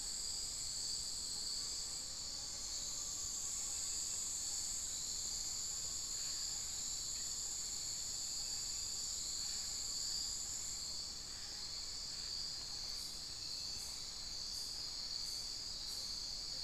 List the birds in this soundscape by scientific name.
Glaucidium hardyi